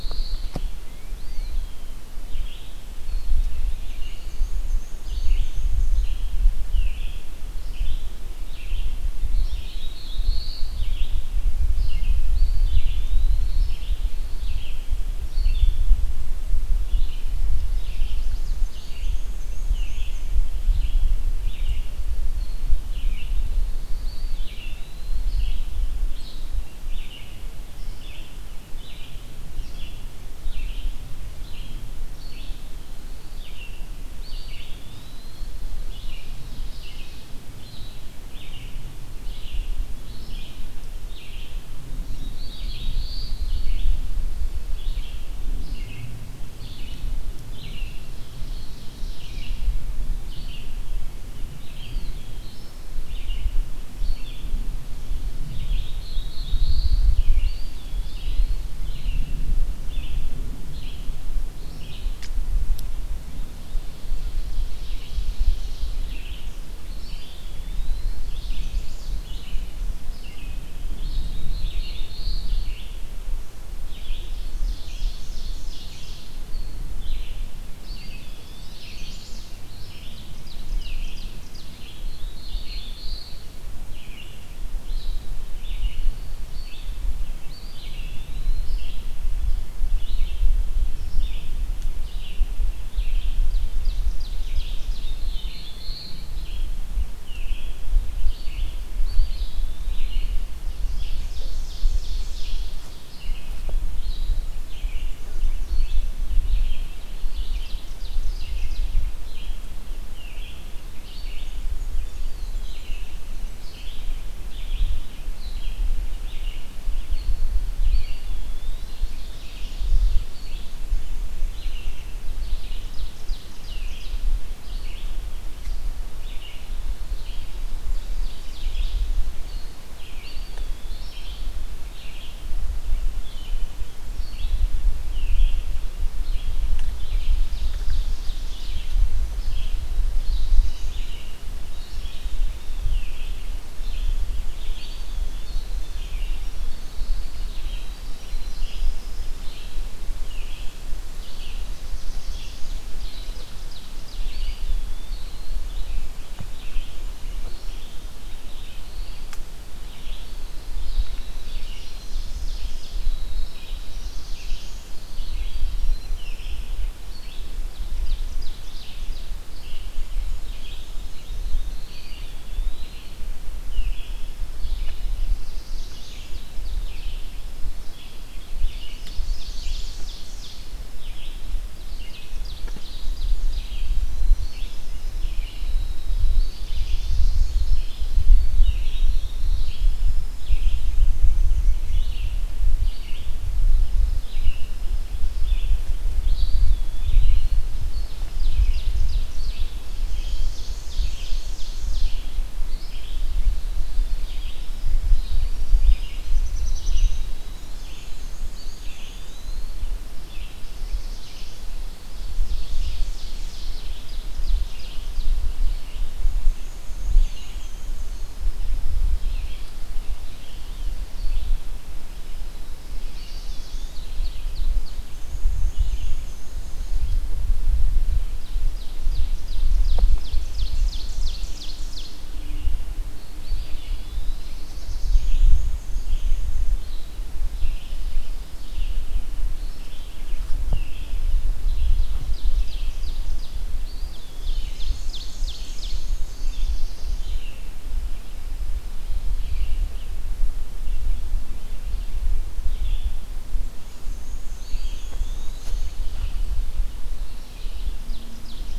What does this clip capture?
Black-throated Blue Warbler, Red-eyed Vireo, Eastern Wood-Pewee, Black-and-white Warbler, Chestnut-sided Warbler, Ovenbird, Winter Wren